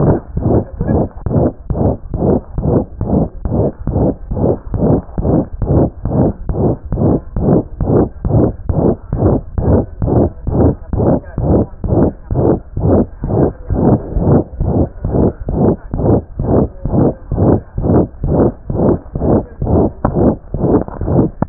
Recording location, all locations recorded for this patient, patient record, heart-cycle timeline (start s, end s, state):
mitral valve (MV)
aortic valve (AV)+pulmonary valve (PV)+tricuspid valve (TV)+mitral valve (MV)
#Age: Child
#Sex: Female
#Height: 84.0 cm
#Weight: 10.8 kg
#Pregnancy status: False
#Murmur: Present
#Murmur locations: aortic valve (AV)+mitral valve (MV)+pulmonary valve (PV)+tricuspid valve (TV)
#Most audible location: pulmonary valve (PV)
#Systolic murmur timing: Holosystolic
#Systolic murmur shape: Plateau
#Systolic murmur grading: III/VI or higher
#Systolic murmur pitch: High
#Systolic murmur quality: Harsh
#Diastolic murmur timing: nan
#Diastolic murmur shape: nan
#Diastolic murmur grading: nan
#Diastolic murmur pitch: nan
#Diastolic murmur quality: nan
#Outcome: Abnormal
#Campaign: 2015 screening campaign
0.00	10.91	unannotated
10.91	10.98	S1
10.98	11.15	systole
11.15	11.20	S2
11.20	11.36	diastole
11.36	11.44	S1
11.44	11.62	systole
11.62	11.67	S2
11.67	11.82	diastole
11.82	11.89	S1
11.89	12.08	systole
12.08	12.13	S2
12.13	12.28	diastole
12.28	12.36	S1
12.36	12.55	systole
12.55	12.60	S2
12.60	12.75	diastole
12.75	12.82	S1
12.82	13.00	systole
13.00	13.07	S2
13.07	13.22	diastole
13.22	13.28	S1
13.28	13.47	systole
13.47	13.53	S2
13.53	13.68	diastole
13.68	13.77	S1
13.77	13.94	systole
13.94	13.99	S2
13.99	14.13	diastole
14.13	14.22	S1
14.22	14.38	systole
14.38	14.46	S2
14.46	14.58	diastole
14.58	14.67	S1
14.67	14.83	systole
14.83	14.89	S2
14.89	15.02	diastole
15.02	15.09	S1
15.09	15.28	systole
15.28	15.33	S2
15.33	15.46	diastole
15.46	15.53	S1
15.53	15.71	systole
15.71	15.77	S2
15.77	15.91	diastole
15.91	15.98	S1
15.98	16.16	systole
16.16	16.23	S2
16.23	16.37	diastole
16.37	16.43	S1
16.43	16.62	systole
16.62	16.68	S2
16.68	16.82	diastole
16.82	16.89	S1
16.89	21.49	unannotated